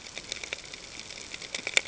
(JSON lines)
{"label": "ambient", "recorder": "HydroMoth"}